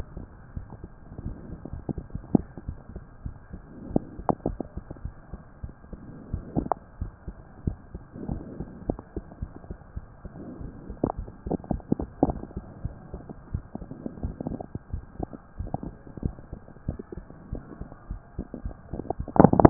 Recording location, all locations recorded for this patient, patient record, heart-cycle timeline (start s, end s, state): mitral valve (MV)
aortic valve (AV)+pulmonary valve (PV)+tricuspid valve (TV)+mitral valve (MV)
#Age: Child
#Sex: Male
#Height: 127.0 cm
#Weight: 33.0 kg
#Pregnancy status: False
#Murmur: Absent
#Murmur locations: nan
#Most audible location: nan
#Systolic murmur timing: nan
#Systolic murmur shape: nan
#Systolic murmur grading: nan
#Systolic murmur pitch: nan
#Systolic murmur quality: nan
#Diastolic murmur timing: nan
#Diastolic murmur shape: nan
#Diastolic murmur grading: nan
#Diastolic murmur pitch: nan
#Diastolic murmur quality: nan
#Outcome: Normal
#Campaign: 2015 screening campaign
0.00	12.27	unannotated
12.27	12.40	S1
12.40	12.54	systole
12.54	12.64	S2
12.64	12.82	diastole
12.82	12.96	S1
12.96	13.10	systole
13.10	13.22	S2
13.22	13.52	diastole
13.52	13.64	S1
13.64	13.79	systole
13.79	13.88	S2
13.88	14.22	diastole
14.22	14.36	S1
14.36	14.46	systole
14.46	14.58	S2
14.58	14.90	diastole
14.90	15.04	S1
15.04	15.18	systole
15.18	15.30	S2
15.30	15.58	diastole
15.58	15.72	S1
15.72	15.82	systole
15.82	15.94	S2
15.94	16.22	diastole
16.22	16.36	S1
16.36	16.49	systole
16.49	16.58	S2
16.58	16.86	diastole
16.86	16.98	S1
16.98	17.14	systole
17.14	17.24	S2
17.24	17.50	diastole
17.50	17.64	S1
17.64	17.78	systole
17.78	17.90	S2
17.90	18.08	diastole
18.08	18.22	S1
18.22	19.70	unannotated